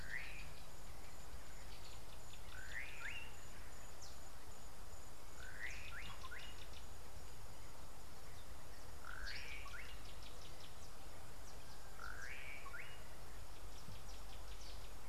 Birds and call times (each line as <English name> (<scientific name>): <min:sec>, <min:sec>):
Slate-colored Boubou (Laniarius funebris): 0:03.0, 0:12.3